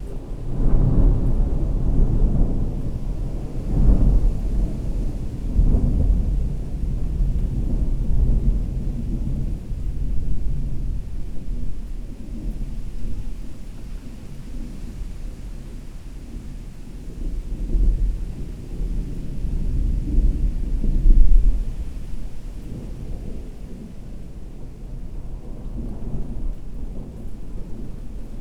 Is the hissing sound likely rainfall?
yes